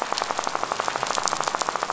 {"label": "biophony, rattle", "recorder": "SoundTrap 500"}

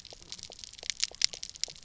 {"label": "biophony, pulse", "recorder": "SoundTrap 300"}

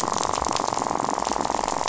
{"label": "biophony, rattle", "recorder": "SoundTrap 500"}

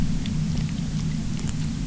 {"label": "anthrophony, boat engine", "recorder": "SoundTrap 300"}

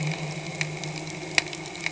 {"label": "anthrophony, boat engine", "recorder": "HydroMoth"}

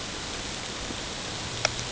{"label": "ambient", "recorder": "HydroMoth"}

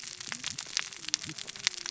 {"label": "biophony, cascading saw", "recorder": "SoundTrap 600 or HydroMoth"}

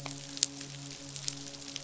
{"label": "biophony, midshipman", "recorder": "SoundTrap 500"}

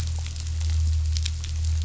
{"label": "anthrophony, boat engine", "recorder": "SoundTrap 500"}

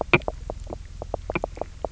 {"label": "biophony, knock croak", "recorder": "SoundTrap 300"}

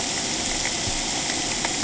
{"label": "ambient", "recorder": "HydroMoth"}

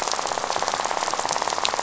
{"label": "biophony, rattle", "recorder": "SoundTrap 500"}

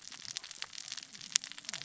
{"label": "biophony, cascading saw", "recorder": "SoundTrap 600 or HydroMoth"}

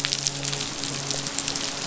{"label": "biophony, midshipman", "recorder": "SoundTrap 500"}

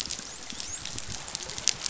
{"label": "biophony, dolphin", "recorder": "SoundTrap 500"}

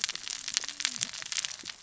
{"label": "biophony, cascading saw", "recorder": "SoundTrap 600 or HydroMoth"}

